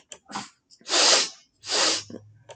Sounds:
Sniff